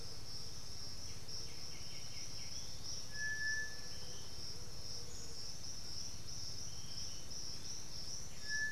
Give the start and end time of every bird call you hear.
[0.00, 8.72] Piratic Flycatcher (Legatus leucophaius)
[0.75, 2.85] White-winged Becard (Pachyramphus polychopterus)
[7.85, 8.72] White-winged Becard (Pachyramphus polychopterus)

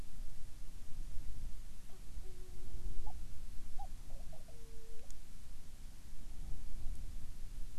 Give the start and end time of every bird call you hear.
[1.80, 3.21] Hawaiian Petrel (Pterodroma sandwichensis)
[3.71, 5.11] Hawaiian Petrel (Pterodroma sandwichensis)

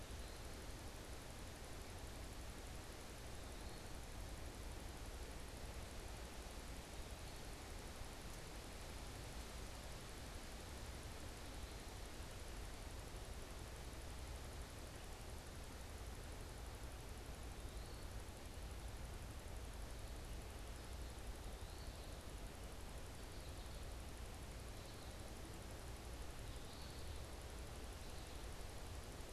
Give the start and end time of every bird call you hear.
[0.00, 27.50] Eastern Wood-Pewee (Contopus virens)
[22.80, 28.50] American Goldfinch (Spinus tristis)

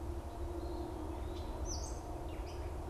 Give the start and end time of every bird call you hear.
[1.22, 2.32] Gray Catbird (Dumetella carolinensis)

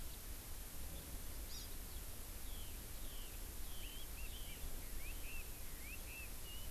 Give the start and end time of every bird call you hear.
[0.04, 0.14] House Finch (Haemorhous mexicanus)
[1.44, 1.74] Hawaii Amakihi (Chlorodrepanis virens)
[1.84, 2.04] Eurasian Skylark (Alauda arvensis)
[2.44, 6.71] Chinese Hwamei (Garrulax canorus)

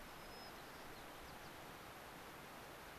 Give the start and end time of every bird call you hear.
[0.00, 1.50] White-crowned Sparrow (Zonotrichia leucophrys)

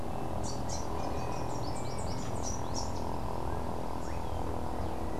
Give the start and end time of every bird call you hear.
[0.00, 5.19] Melodious Warbler (Hippolais polyglotta)
[0.21, 3.21] Rufous-capped Warbler (Basileuterus rufifrons)

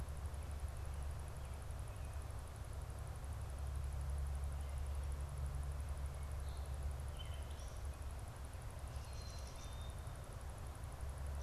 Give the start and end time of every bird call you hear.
[8.92, 10.02] Black-capped Chickadee (Poecile atricapillus)

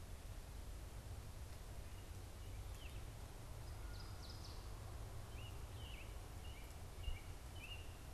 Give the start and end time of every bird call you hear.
[1.89, 3.19] American Robin (Turdus migratorius)
[3.39, 4.69] Northern Waterthrush (Parkesia noveboracensis)
[5.09, 7.89] American Robin (Turdus migratorius)

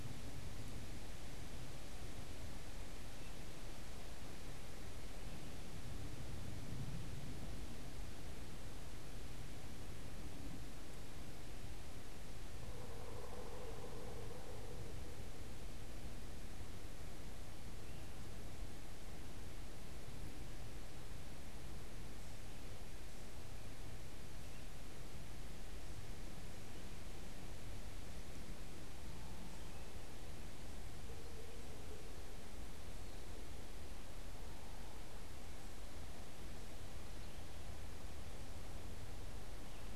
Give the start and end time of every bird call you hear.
[12.54, 14.94] Pileated Woodpecker (Dryocopus pileatus)

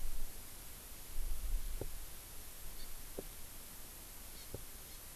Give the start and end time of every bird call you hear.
[2.80, 2.90] Hawaii Amakihi (Chlorodrepanis virens)
[4.30, 4.50] Hawaii Amakihi (Chlorodrepanis virens)
[4.90, 5.00] Hawaii Amakihi (Chlorodrepanis virens)

